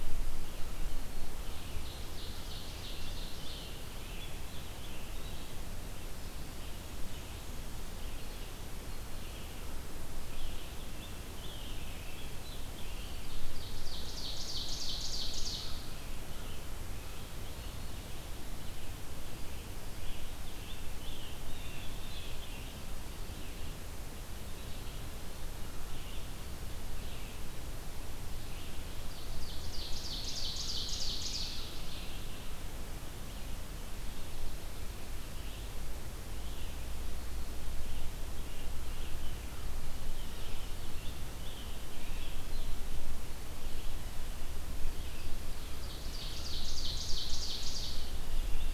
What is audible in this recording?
Red-eyed Vireo, Ovenbird, American Robin, Blue Jay